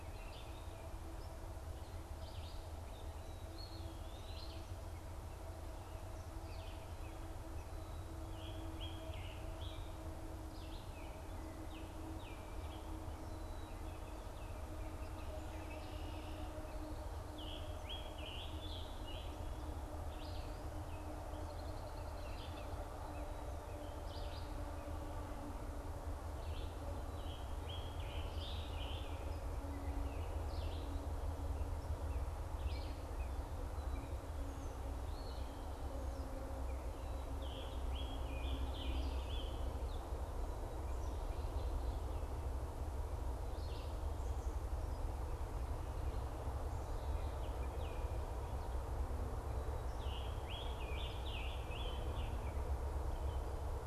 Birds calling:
Red-winged Blackbird (Agelaius phoeniceus), Baltimore Oriole (Icterus galbula), Eastern Wood-Pewee (Contopus virens), Red-eyed Vireo (Vireo olivaceus), Scarlet Tanager (Piranga olivacea)

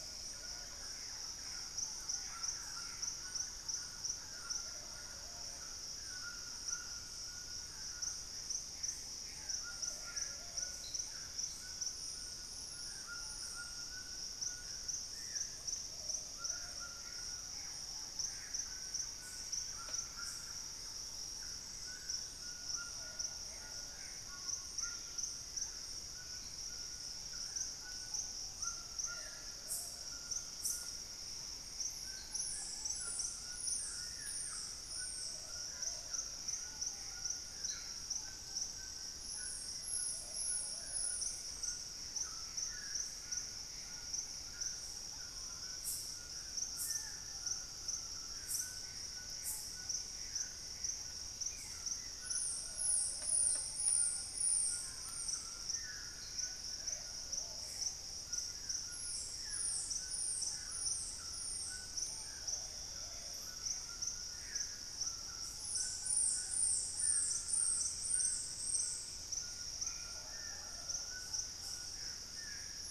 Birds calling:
Plumbeous Pigeon (Patagioenas plumbea), Ruddy Pigeon (Patagioenas subvinacea), Thrush-like Wren (Campylorhynchus turdinus), Screaming Piha (Lipaugus vociferans), Gray Antbird (Cercomacra cinerascens), White-throated Toucan (Ramphastos tucanus), Black-faced Antthrush (Formicarius analis), Dusky-throated Antshrike (Thamnomanes ardesiacus)

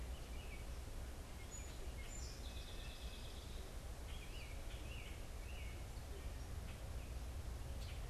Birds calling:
Song Sparrow (Melospiza melodia), American Robin (Turdus migratorius), Common Grackle (Quiscalus quiscula)

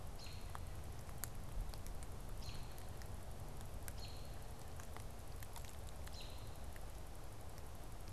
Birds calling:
American Robin (Turdus migratorius)

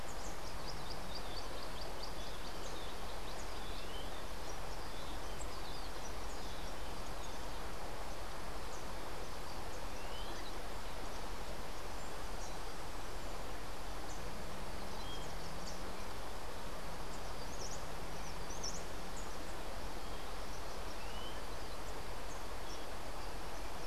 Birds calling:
Clay-colored Thrush (Turdus grayi)

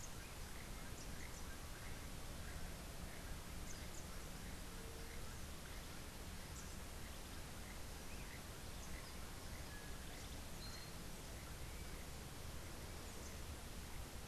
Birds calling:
Keel-billed Toucan (Ramphastos sulfuratus), Yellow-crowned Euphonia (Euphonia luteicapilla)

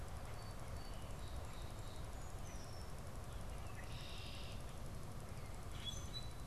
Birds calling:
Song Sparrow (Melospiza melodia), Common Grackle (Quiscalus quiscula), Red-winged Blackbird (Agelaius phoeniceus)

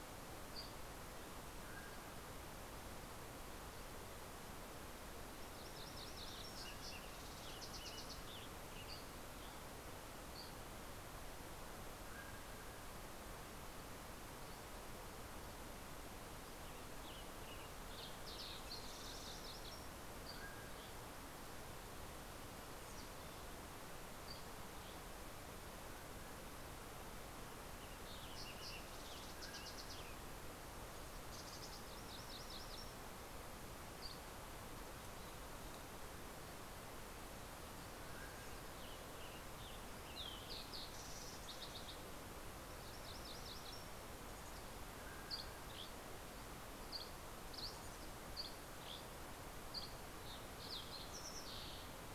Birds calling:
Western Tanager (Piranga ludoviciana), MacGillivray's Warbler (Geothlypis tolmiei), Dusky Flycatcher (Empidonax oberholseri), Fox Sparrow (Passerella iliaca), Mountain Chickadee (Poecile gambeli), Mountain Quail (Oreortyx pictus)

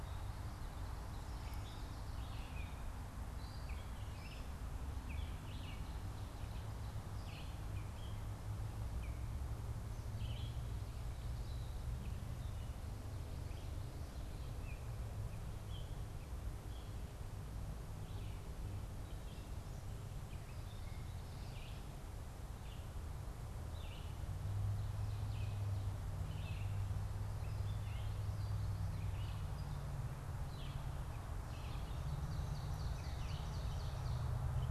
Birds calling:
Gray Catbird (Dumetella carolinensis), Ovenbird (Seiurus aurocapilla), Red-eyed Vireo (Vireo olivaceus)

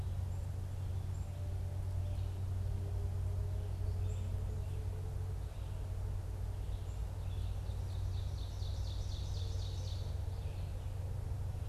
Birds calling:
Red-eyed Vireo (Vireo olivaceus), Black-capped Chickadee (Poecile atricapillus), Ovenbird (Seiurus aurocapilla)

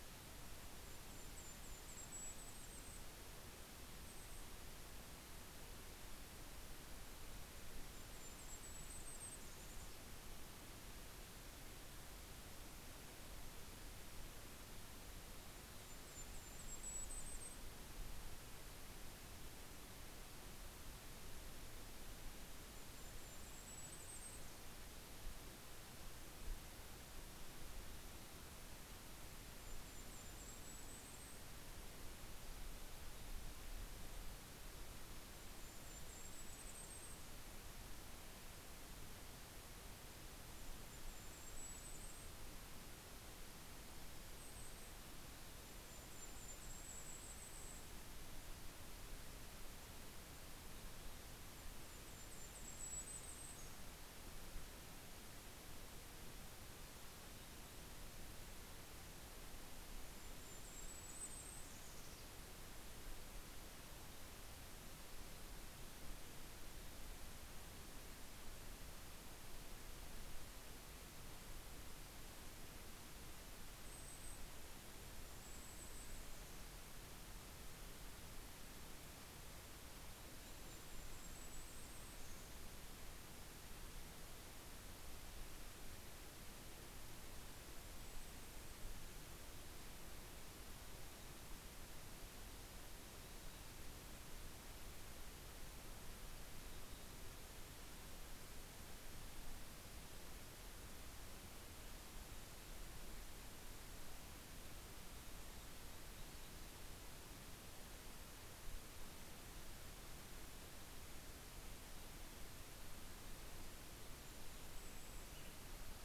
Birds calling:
Mountain Chickadee (Poecile gambeli), Golden-crowned Kinglet (Regulus satrapa), Western Tanager (Piranga ludoviciana)

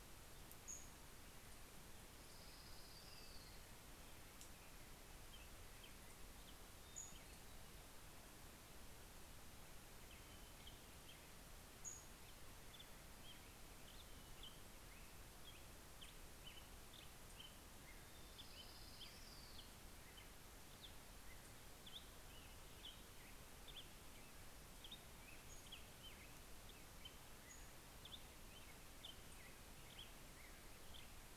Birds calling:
Black-headed Grosbeak (Pheucticus melanocephalus), Orange-crowned Warbler (Leiothlypis celata), Pacific-slope Flycatcher (Empidonax difficilis)

